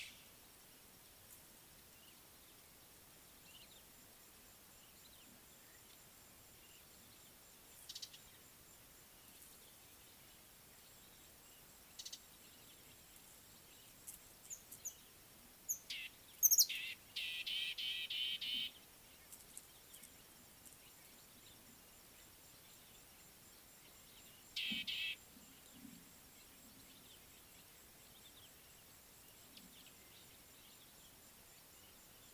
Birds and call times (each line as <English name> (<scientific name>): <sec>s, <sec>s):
Beautiful Sunbird (Cinnyris pulchellus): 8.0s, 12.0s
Somali Tit (Melaniparus thruppi): 15.7s, 16.5s, 17.9s, 24.8s